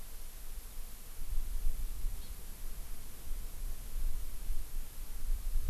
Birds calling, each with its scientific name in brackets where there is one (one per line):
Hawaii Amakihi (Chlorodrepanis virens)